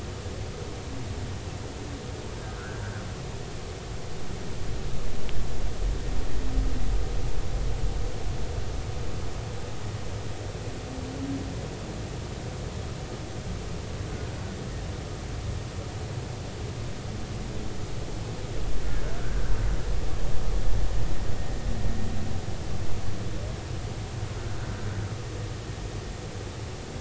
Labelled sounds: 2.4	2.8	humpback whale, 1.3 to 1.7 kHz
14.1	14.4	humpback whale, 1.4 to 1.6 kHz
19.2	19.4	humpback whale, 1.3 to 1.7 kHz

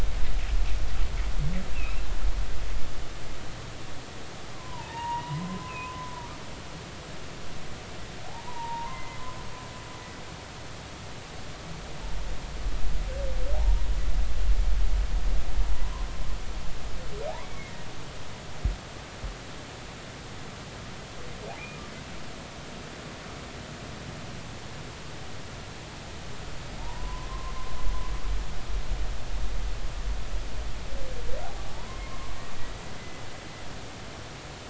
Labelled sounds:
1.7	2.0	humpback whale, 2.3 to 2.8 kHz
4.5	6.1	humpback whale, 0.83 to 2.7 kHz
8.3	9.2	humpback whale, 0.80 to 2.1 kHz
13.5	13.9	humpback whale, 0.80 to 1.1 kHz
17.4	17.7	humpback whale, 1.9 to 2.3 kHz
21.5	21.8	humpback whale, 2.0 to 2.5 kHz
26.8	27.5	humpback whale, 0.86 to 1.1 kHz
31.6	32.1	humpback whale, 0.80 to 2.2 kHz
33.0	33.3	humpback whale, 1.0 to 2.0 kHz

